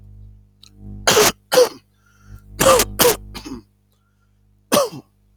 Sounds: Cough